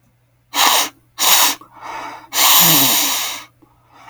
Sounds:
Sniff